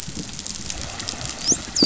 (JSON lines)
{"label": "biophony, dolphin", "recorder": "SoundTrap 500"}